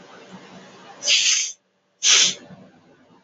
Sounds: Sniff